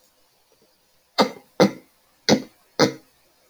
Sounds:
Throat clearing